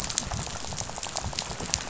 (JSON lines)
{"label": "biophony, rattle", "recorder": "SoundTrap 500"}